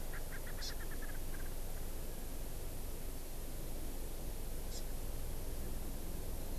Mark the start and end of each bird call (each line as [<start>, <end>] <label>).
[0.00, 1.59] Erckel's Francolin (Pternistis erckelii)
[0.59, 0.69] Hawaii Amakihi (Chlorodrepanis virens)
[4.69, 4.79] Hawaii Amakihi (Chlorodrepanis virens)